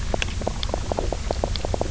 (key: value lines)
label: biophony, knock croak
recorder: SoundTrap 300